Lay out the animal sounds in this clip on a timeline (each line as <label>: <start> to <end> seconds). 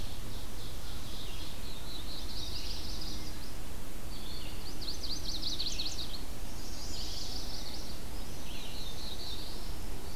Red-eyed Vireo (Vireo olivaceus): 0.0 to 10.2 seconds
Ovenbird (Seiurus aurocapilla): 0.0 to 1.6 seconds
Black-throated Blue Warbler (Setophaga caerulescens): 1.3 to 2.9 seconds
Chestnut-sided Warbler (Setophaga pensylvanica): 1.6 to 3.3 seconds
Chestnut-sided Warbler (Setophaga pensylvanica): 4.1 to 8.1 seconds
Northern Parula (Setophaga americana): 6.3 to 7.5 seconds
Black-throated Blue Warbler (Setophaga caerulescens): 8.3 to 9.9 seconds